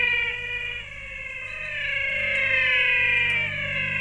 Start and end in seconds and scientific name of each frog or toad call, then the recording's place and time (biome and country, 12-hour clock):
0.0	4.0	Physalaemus albonotatus
1.3	4.0	Ameerega picta
Cerrado, Brazil, 5:45pm